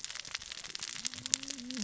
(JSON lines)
{"label": "biophony, cascading saw", "recorder": "SoundTrap 600 or HydroMoth"}